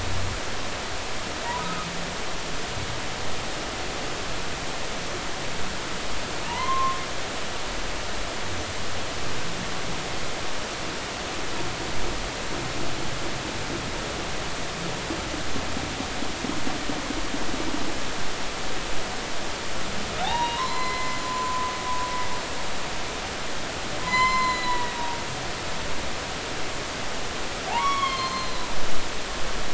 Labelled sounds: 1.6	1.9	humpback whale, 1.2 to 1.3 kHz
6.5	7.0	humpback whale, 0.86 to 2.1 kHz
20.2	21.7	humpback whale, 0.80 to 4.2 kHz
24.0	25.0	humpback whale, 0.93 to 7.3 kHz
27.7	28.7	humpback whale, 0.80 to 4.4 kHz

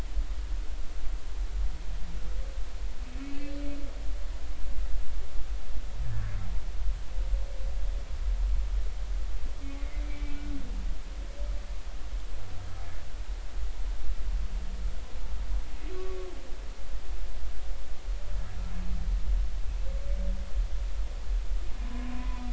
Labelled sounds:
3.2	3.5	humpback whale, 2.4 to 2.7 kHz
9.6	10.5	humpback whale, 2.0 to 2.4 kHz
21.8	22.4	humpback whale, 0.93 to 1.1 kHz

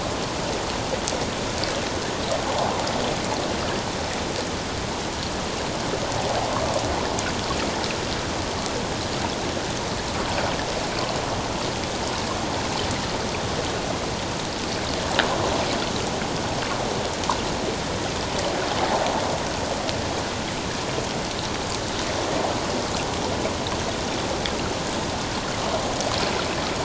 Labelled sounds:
6.5	6.8	water noise, 1.0 to 1.2 kHz

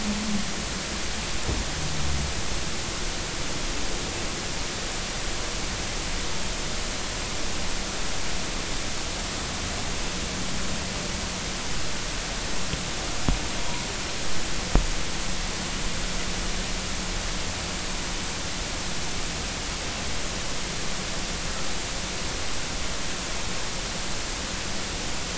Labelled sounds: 13.6	13.9	humpback whale, 0.93 to 1.1 kHz

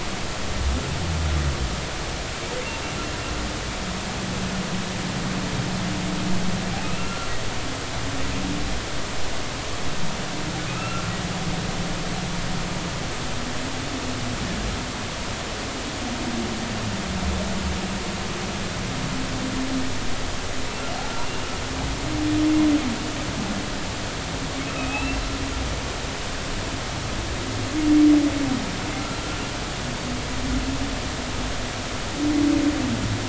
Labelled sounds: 6.8	7.3	humpback whale, 1.3 to 2.8 kHz
10.7	11.1	humpback whale, 1.2 to 1.4 kHz
21.2	21.5	humpback whale, 2.7 to 2.9 kHz
24.7	25.2	humpback whale, 2.4 to 2.8 kHz

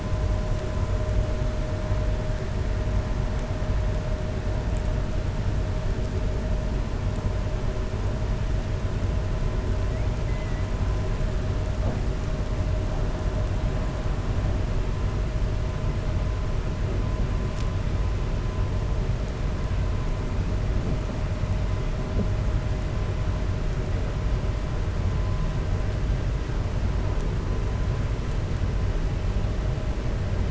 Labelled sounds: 10.2	10.6	killer whale, 1.3 to 2.8 kHz

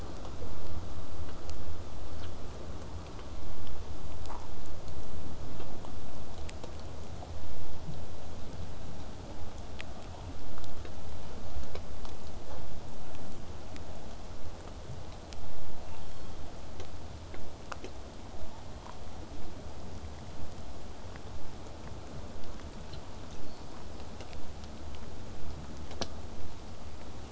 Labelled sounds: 22.3	27.3	vessel noise, 0 to 8.0 kHz

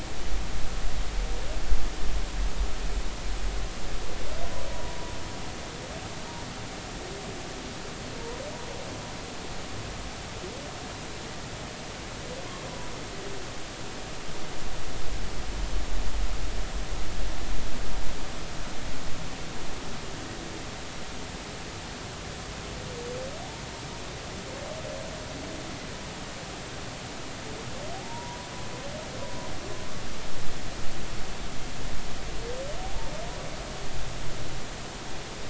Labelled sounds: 4.7	5.0	humpback whale, 0.93 to 0.99 kHz
27.9	28.5	humpback whale, 0.80 to 1.1 kHz

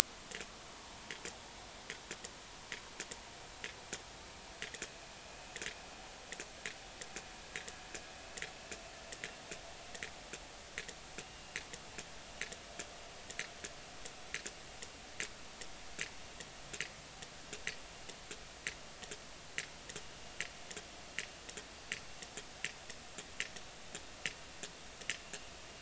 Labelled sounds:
0.7	1.0	vessel noise, 0.83 to 0.99 kHz
11.2	11.6	vessel noise, 2.7 to 2.9 kHz

